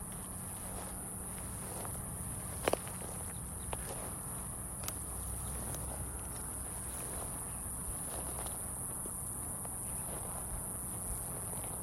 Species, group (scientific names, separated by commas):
Okanagana hesperia, Cicadidae